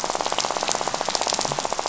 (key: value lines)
label: biophony, rattle
recorder: SoundTrap 500